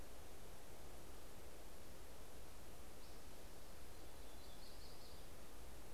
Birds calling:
Yellow-rumped Warbler (Setophaga coronata), Spotted Towhee (Pipilo maculatus)

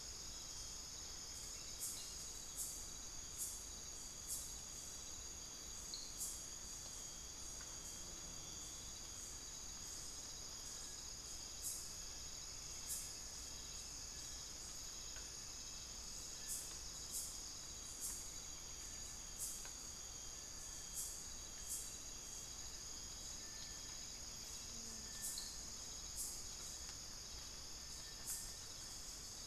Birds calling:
Little Tinamou (Crypturellus soui), unidentified bird

